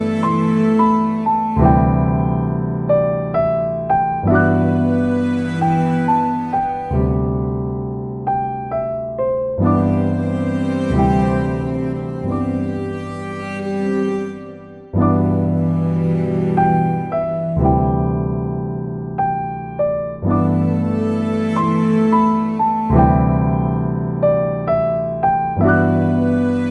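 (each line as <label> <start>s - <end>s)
A cello plays a melodic tune. 0.0s - 1.5s
A piano is playing melodically. 0.0s - 13.6s
A cello plays a melodic tune. 4.6s - 6.9s
A cello plays a melodic tune. 9.6s - 17.7s
A piano is playing melodically. 14.9s - 26.7s
A cello plays a melodic tune. 20.4s - 23.2s
A cello plays a melodic tune. 25.6s - 26.7s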